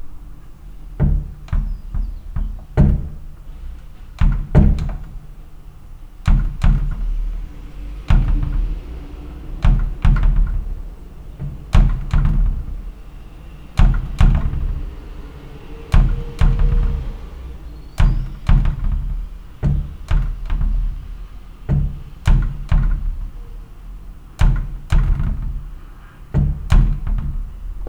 What instrument played with a foot does the sound resemble?
drum